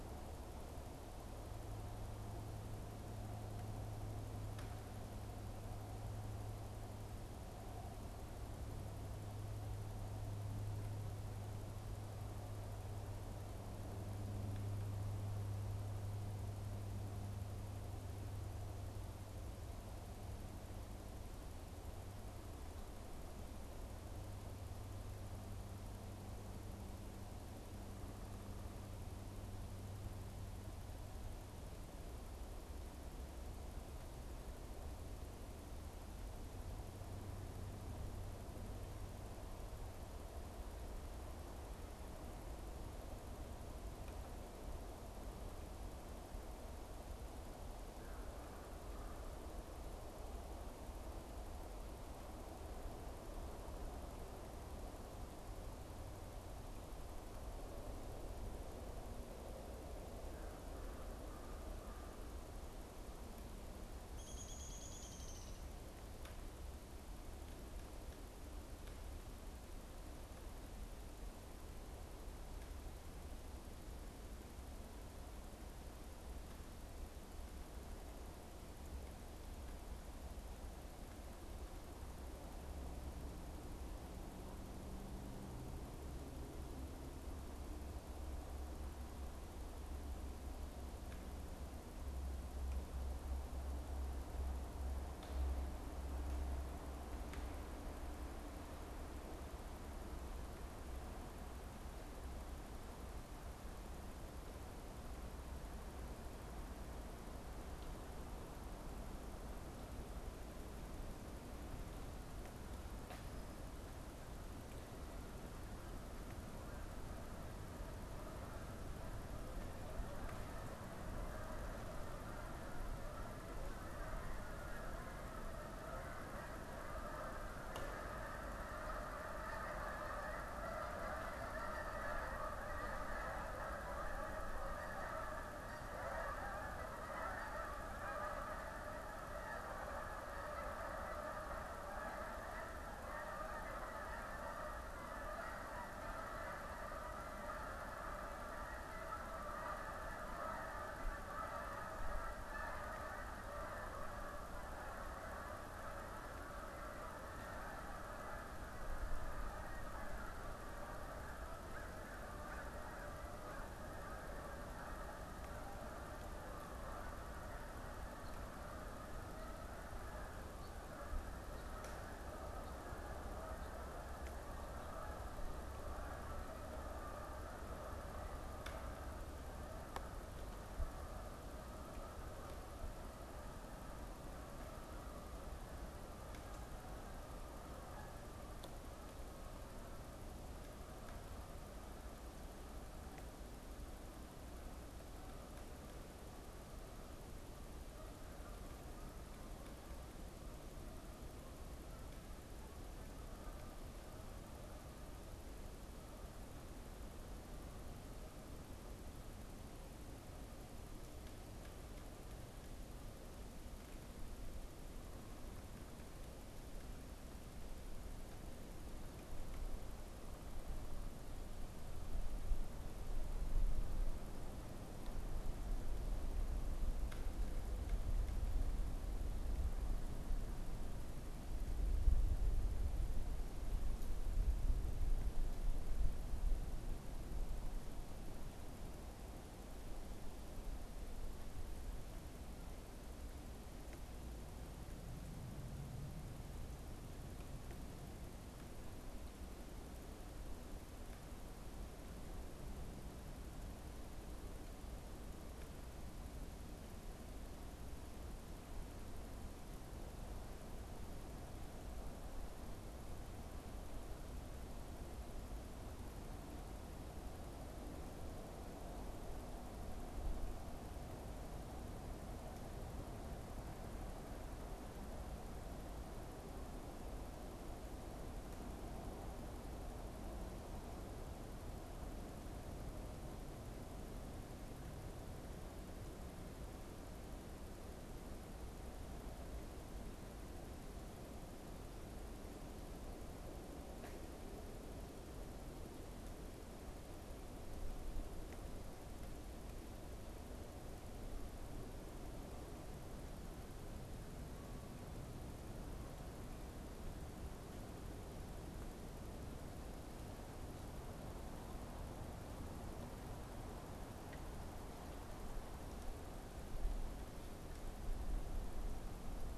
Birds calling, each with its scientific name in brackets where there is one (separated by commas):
Canada Goose (Branta canadensis), Downy Woodpecker (Dryobates pubescens)